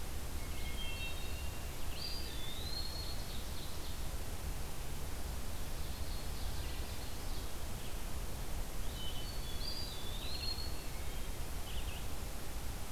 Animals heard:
Eastern Wood-Pewee (Contopus virens)
Hermit Thrush (Catharus guttatus)
Blue-headed Vireo (Vireo solitarius)
Ovenbird (Seiurus aurocapilla)

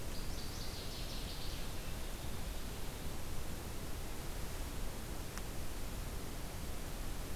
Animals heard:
Northern Waterthrush (Parkesia noveboracensis)

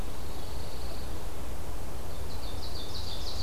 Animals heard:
Pine Warbler (Setophaga pinus)
Ovenbird (Seiurus aurocapilla)

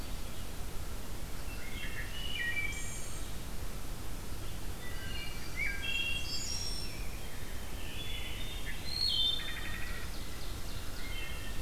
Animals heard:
Blackburnian Warbler (Setophaga fusca)
Ovenbird (Seiurus aurocapilla)
Rose-breasted Grosbeak (Pheucticus ludovicianus)
Wood Thrush (Hylocichla mustelina)

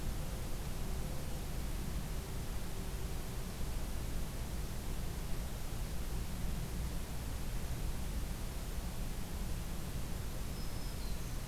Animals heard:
Black-throated Green Warbler (Setophaga virens)
Mourning Dove (Zenaida macroura)

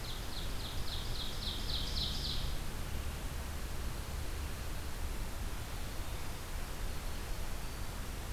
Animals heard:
Winter Wren (Troglodytes hiemalis)
Ovenbird (Seiurus aurocapilla)

